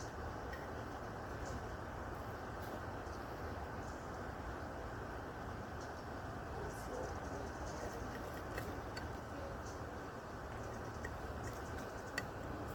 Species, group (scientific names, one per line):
Magicicada septendecula
Cicadidae